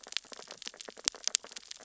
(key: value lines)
label: biophony, sea urchins (Echinidae)
recorder: SoundTrap 600 or HydroMoth